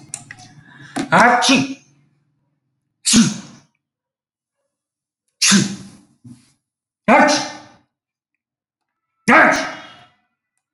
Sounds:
Sniff